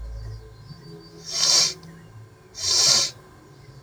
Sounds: Sniff